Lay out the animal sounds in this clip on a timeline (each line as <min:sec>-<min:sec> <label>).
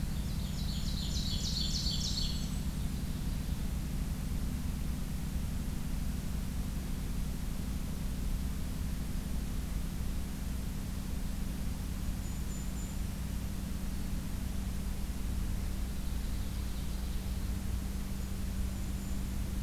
0:00.0-0:03.6 Ovenbird (Seiurus aurocapilla)
0:00.3-0:02.9 Golden-crowned Kinglet (Regulus satrapa)
0:12.0-0:13.1 Golden-crowned Kinglet (Regulus satrapa)
0:13.7-0:14.1 Black-throated Green Warbler (Setophaga virens)
0:15.5-0:17.5 Ovenbird (Seiurus aurocapilla)
0:18.1-0:19.3 Golden-crowned Kinglet (Regulus satrapa)